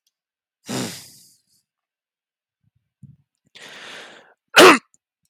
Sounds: Cough